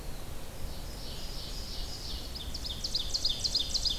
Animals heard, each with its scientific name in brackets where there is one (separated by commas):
Eastern Wood-Pewee (Contopus virens), Ovenbird (Seiurus aurocapilla), Red-eyed Vireo (Vireo olivaceus)